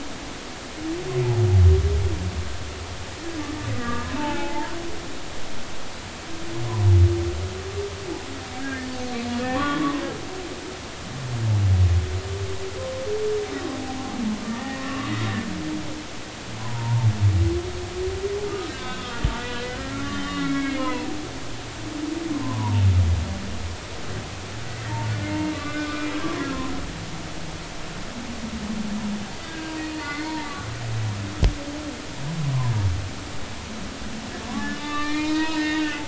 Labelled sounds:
3.8	4.7	humpback whale, 0.80 to 1.7 kHz
8.6	10.0	humpback whale, 0.99 to 2.0 kHz
13.7	15.1	humpback whale, 0.80 to 2.9 kHz
16.6	17.1	humpback whale, 0.83 to 1.1 kHz
18.7	21.2	humpback whale, 0.93 to 4.3 kHz
22.4	22.8	humpback whale, 0.83 to 1.1 kHz
25.5	26.5	humpback whale, 0.99 to 1.6 kHz
29.5	30.4	humpback whale, 1.4 to 4.6 kHz
34.7	36.0	humpback whale, 0.83 to 5.0 kHz

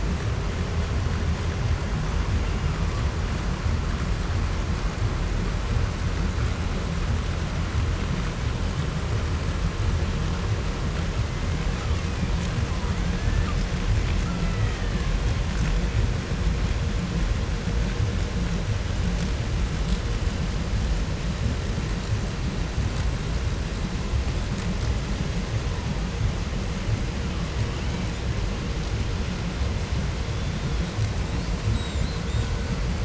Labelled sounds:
11.1	12.4	killer whale, 0.67 to 4.1 kHz
12.8	13.5	killer whale, Bigg's (transient), call T01, 0.65 to 3.8 kHz
14.1	15.3	killer whale, Bigg's (transient), call T02, 0.80 to 5.0 kHz
27.1	28.3	killer whale, 0.50 to 4.7 kHz
30.1	30.9	killer whale, 2.9 to 4.4 kHz
31.2	32.8	killer whale, 0.86 to 8.0 kHz

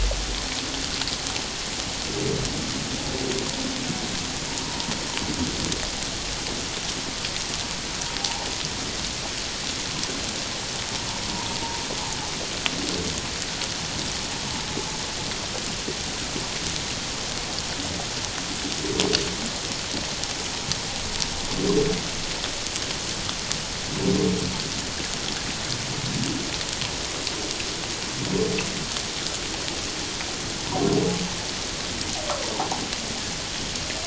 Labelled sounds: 4.5	4.9	humpback whale, 0.88 to 1.1 kHz

